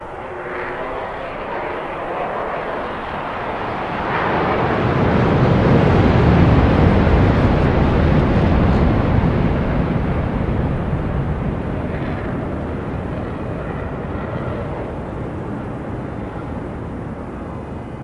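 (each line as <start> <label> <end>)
3.7 An airplane roars as it passes by. 11.4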